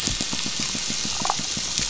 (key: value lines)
label: anthrophony, boat engine
recorder: SoundTrap 500

label: biophony, damselfish
recorder: SoundTrap 500

label: biophony, pulse
recorder: SoundTrap 500